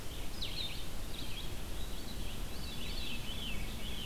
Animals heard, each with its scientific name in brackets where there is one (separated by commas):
Veery (Catharus fuscescens), Red-eyed Vireo (Vireo olivaceus), Blue-headed Vireo (Vireo solitarius)